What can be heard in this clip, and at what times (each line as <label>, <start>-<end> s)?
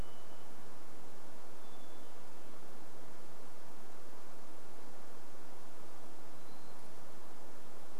Varied Thrush song, 0-2 s
Hermit Thrush song, 0-4 s
Hermit Thrush song, 6-8 s